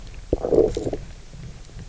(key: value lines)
label: biophony, low growl
recorder: SoundTrap 300